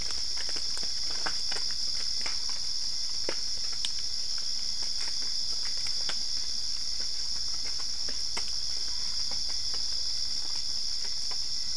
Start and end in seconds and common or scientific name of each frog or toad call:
none